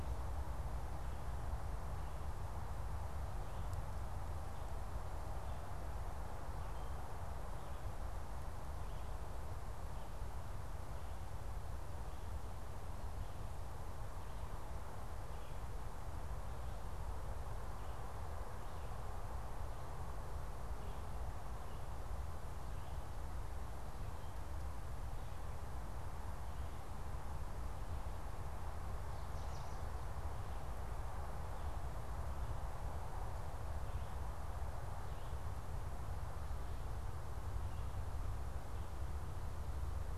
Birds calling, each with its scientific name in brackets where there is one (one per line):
American Goldfinch (Spinus tristis)